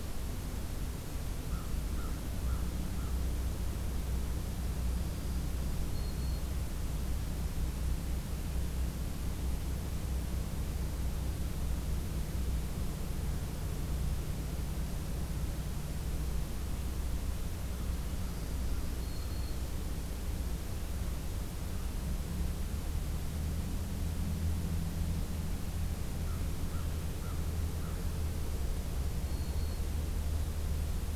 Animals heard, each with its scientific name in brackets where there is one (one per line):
American Crow (Corvus brachyrhynchos)
Black-throated Green Warbler (Setophaga virens)